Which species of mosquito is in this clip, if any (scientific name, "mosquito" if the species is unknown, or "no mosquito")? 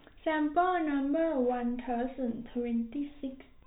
no mosquito